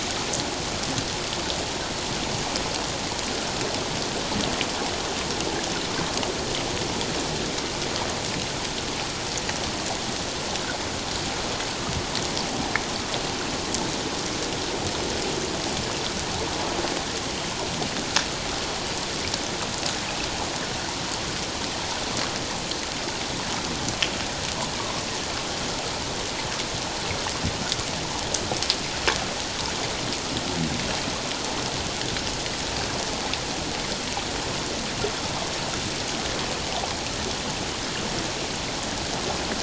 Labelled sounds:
24.8	25.0	water noise, 1.0 to 1.2 kHz

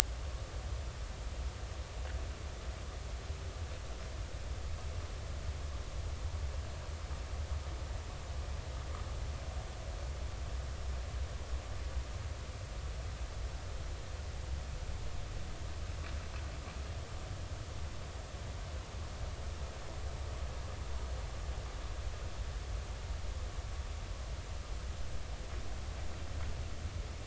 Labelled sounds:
0.2	0.5	vessel noise, 1.0 to 1.2 kHz

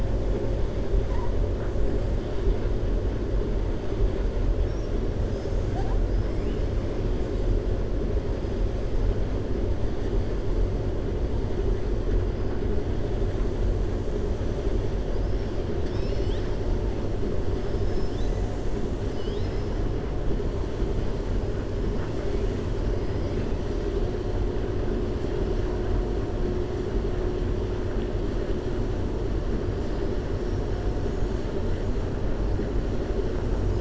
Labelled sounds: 6.0	6.5	killer whale, 4.8 to 5.4 kHz
15.7	16.5	killer whale, 1.8 to 7.6 kHz

